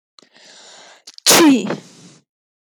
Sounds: Sneeze